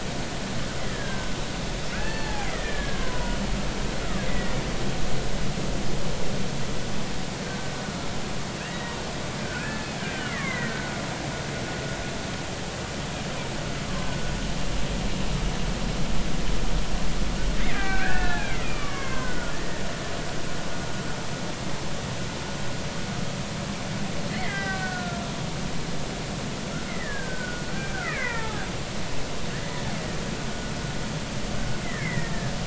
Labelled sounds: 0.8	4.6	killer whale, Bigg's (transient), 0.80 to 4.5 kHz
8.6	11.0	killer whale, Bigg's (transient), 1.3 to 2.3 kHz
17.7	19.8	killer whale, Bigg's (transient), 0.96 to 2.7 kHz
24.3	25.4	killer whale, Bigg's (transient), 1.1 to 5.2 kHz
26.9	28.6	killer whale, Bigg's (transient), 0.80 to 2.6 kHz
31.8	32.3	killer whale, Bigg's (transient), 1.6 to 2.3 kHz

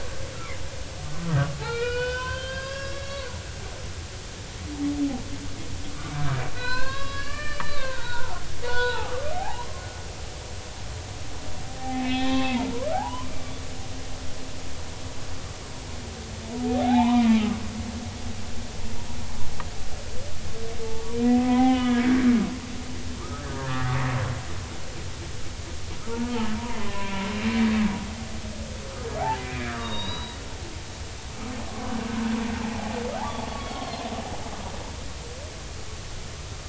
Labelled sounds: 1.6	3.3	humpback whale, 0.93 to 5.6 kHz
6.5	10.2	humpback whale, 0.80 to 5.4 kHz
11.8	13.3	humpback whale, 0.80 to 4.2 kHz
16.6	17.3	humpback whale, 0.80 to 3.6 kHz
20.8	22.0	humpback whale, 0.80 to 3.5 kHz
23.2	24.0	humpback whale, 1.1 to 2.0 kHz
26.1	26.3	humpback whale, 0.86 to 0.99 kHz
26.8	27.3	humpback whale, 0.93 to 2.6 kHz
29.2	30.4	humpback whale, 0.80 to 4.9 kHz
32.5	34.1	humpback whale, 0.80 to 4.4 kHz

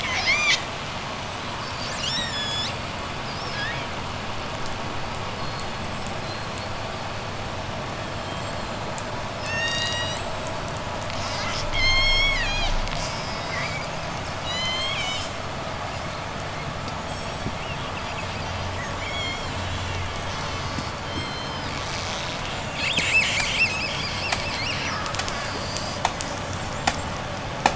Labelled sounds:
0.0	0.8	killer whale, J pod, 0.61 to 8.0 kHz
1.5	8.9	killer whale, J pod, 1.4 to 8.0 kHz
9.2	10.5	killer whale, J pod, 1.3 to 8.0 kHz
10.8	11.7	killer whale, J pod, 1.0 to 8.0 kHz
11.8	12.9	killer whale, J pod, call S03, 1.4 to 8.0 kHz
12.7	14.0	killer whale, J pod, 1.3 to 8.0 kHz
14.4	15.5	killer whale, J pod, call S03, 1.8 to 8.0 kHz
16.8	17.6	killer whale, J pod, 3.1 to 8.0 kHz
17.5	18.7	killer whale, J pod, call S10, 2.2 to 5.3 kHz
18.7	27.7	killer whale, J pod, 0.08 to 8.0 kHz

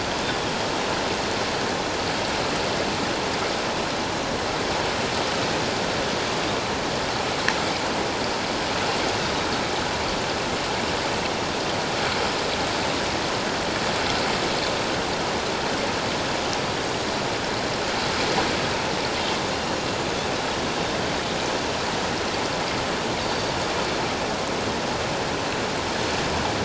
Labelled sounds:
20.7	21.0	Pacific white-sided dolphin, 3.6 to 3.7 kHz
23.2	23.5	Pacific white-sided dolphin, 4.6 to 4.7 kHz

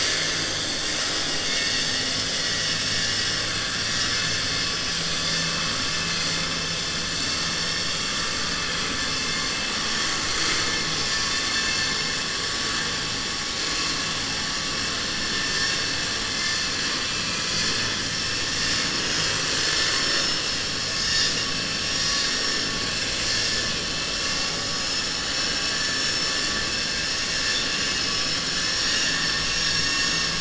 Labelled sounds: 17.0	17.9	vessel noise, 1.7 to 4.8 kHz
27.4	28.1	vessel noise, 1.6 to 5.3 kHz

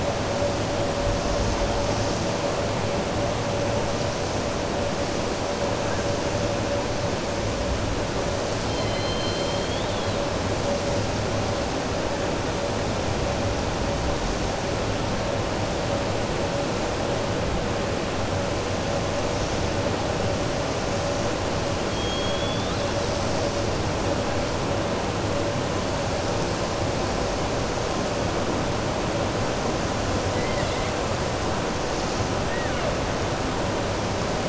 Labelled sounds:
8.6	10.2	killer whale, 2.1 to 5.2 kHz
21.8	23.1	killer whale, 3.2 to 4.7 kHz
30.3	30.9	killer whale, 1.1 to 4.0 kHz
32.4	32.9	killer whale, 1.4 to 2.9 kHz

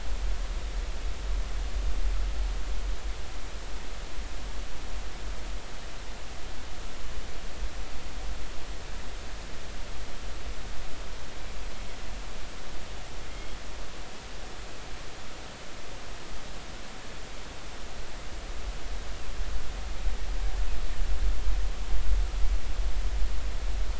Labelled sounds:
13.3	13.6	killer whale, northern resident, G clan, GI subclan, call N23i, 2.0 to 3.4 kHz

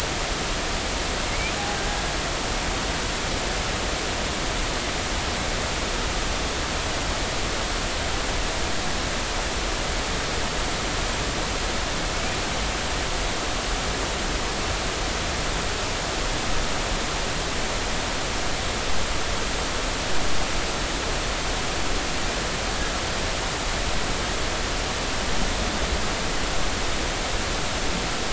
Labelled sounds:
1.3	1.6	killer whale, Bigg's (transient), 2.0 to 2.5 kHz

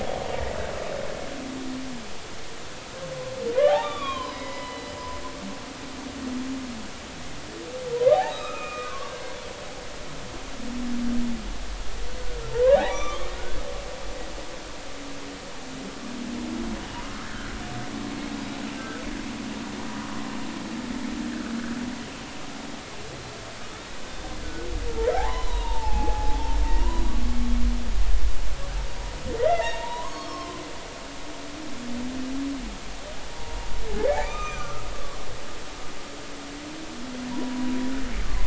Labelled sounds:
3.5	4.9	humpback whale, 0.80 to 5.2 kHz
7.9	9.4	humpback whale, 0.80 to 4.0 kHz
12.5	13.6	humpback whale, 0.80 to 6.0 kHz
18.8	19.0	humpback whale, 1.2 to 1.8 kHz
25.1	27.0	humpback whale, 0.80 to 4.0 kHz
29.4	30.6	humpback whale, 0.86 to 5.4 kHz
33.3	34.8	humpback whale, 0.90 to 6.2 kHz
37.3	37.7	humpback whale, 0.90 to 1.1 kHz

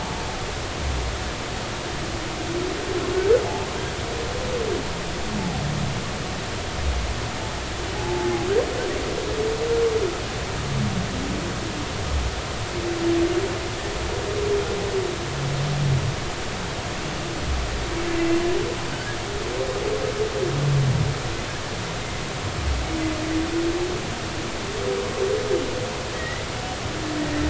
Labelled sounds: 7.9	8.5	humpback whale, 0.80 to 0.93 kHz
18.9	19.2	humpback whale, 1.4 to 1.8 kHz
26.1	26.4	humpback whale, 1.8 to 2.0 kHz

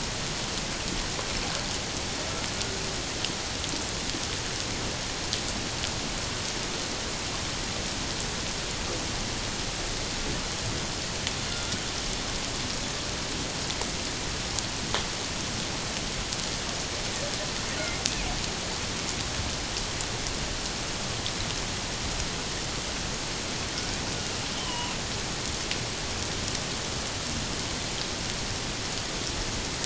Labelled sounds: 24.5	24.9	killer whale, 0.91 to 3.2 kHz

